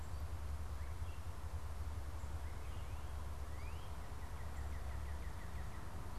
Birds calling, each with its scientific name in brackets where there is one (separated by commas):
unidentified bird, Northern Cardinal (Cardinalis cardinalis)